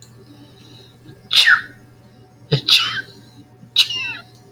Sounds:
Sneeze